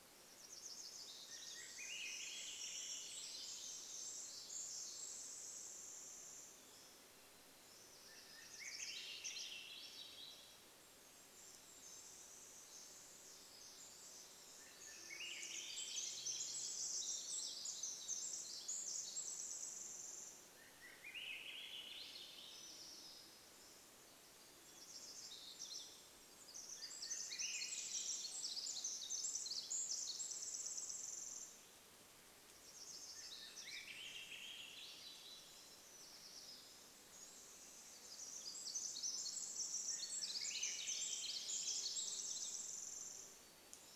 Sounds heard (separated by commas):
Golden-crowned Kinglet song, Swainson's Thrush song, Hammond's Flycatcher song, Pacific Wren song, warbler song, Hermit Thrush song